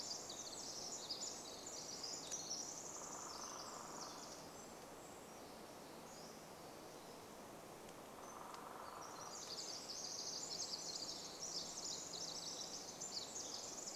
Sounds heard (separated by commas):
Pacific Wren song, Pacific-slope Flycatcher song, woodpecker drumming